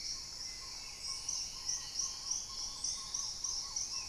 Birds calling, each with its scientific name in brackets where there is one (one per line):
Black-tailed Trogon (Trogon melanurus)
Dusky-throated Antshrike (Thamnomanes ardesiacus)
Paradise Tanager (Tangara chilensis)
Hauxwell's Thrush (Turdus hauxwelli)